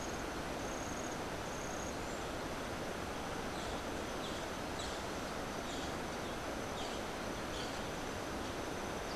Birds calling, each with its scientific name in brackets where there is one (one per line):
Boat-billed Flycatcher (Megarynchus pitangua)